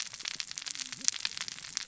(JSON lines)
{"label": "biophony, cascading saw", "recorder": "SoundTrap 600 or HydroMoth"}